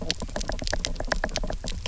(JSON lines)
{"label": "biophony, knock", "recorder": "SoundTrap 300"}